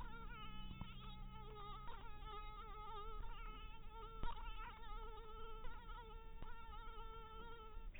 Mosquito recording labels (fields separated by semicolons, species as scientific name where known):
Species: mosquito; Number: one; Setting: cup